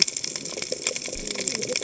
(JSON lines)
{"label": "biophony, cascading saw", "recorder": "HydroMoth"}